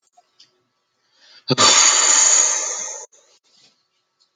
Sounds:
Sigh